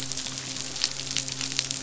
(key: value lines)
label: biophony, midshipman
recorder: SoundTrap 500